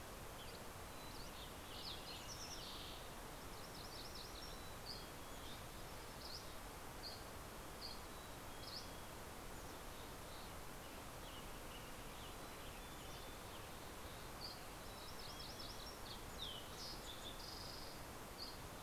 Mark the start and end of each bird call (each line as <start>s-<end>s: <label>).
0.0s-0.9s: Dusky Flycatcher (Empidonax oberholseri)
0.0s-3.6s: Fox Sparrow (Passerella iliaca)
0.5s-2.4s: Mountain Chickadee (Poecile gambeli)
3.5s-5.0s: MacGillivray's Warbler (Geothlypis tolmiei)
4.4s-6.0s: Mountain Chickadee (Poecile gambeli)
5.2s-9.5s: Dusky Flycatcher (Empidonax oberholseri)
7.9s-9.5s: Mountain Chickadee (Poecile gambeli)
10.6s-14.4s: Western Tanager (Piranga ludoviciana)
12.3s-13.8s: Mountain Chickadee (Poecile gambeli)
13.9s-14.9s: Dusky Flycatcher (Empidonax oberholseri)
14.6s-16.3s: MacGillivray's Warbler (Geothlypis tolmiei)
14.7s-16.1s: Mountain Chickadee (Poecile gambeli)
15.7s-18.3s: Fox Sparrow (Passerella iliaca)
18.1s-18.8s: Dusky Flycatcher (Empidonax oberholseri)